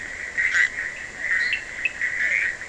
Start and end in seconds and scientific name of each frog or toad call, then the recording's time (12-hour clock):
0.0	2.6	Boana bischoffi
1.0	2.6	Physalaemus cuvieri
1.2	1.7	Boana leptolineata
1.4	2.1	Sphaenorhynchus surdus
3:30am